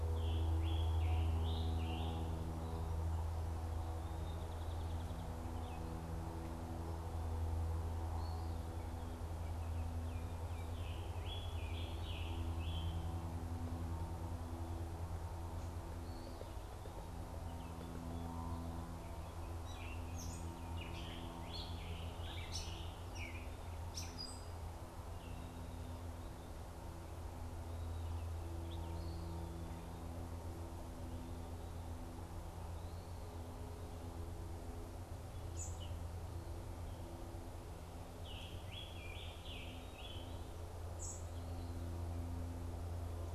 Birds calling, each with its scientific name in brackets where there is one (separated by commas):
Song Sparrow (Melospiza melodia), Scarlet Tanager (Piranga olivacea), unidentified bird, Gray Catbird (Dumetella carolinensis)